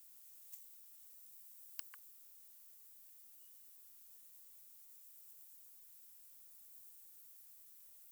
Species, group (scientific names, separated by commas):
Stauroderus scalaris, Orthoptera